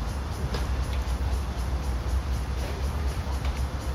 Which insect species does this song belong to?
Cryptotympana takasagona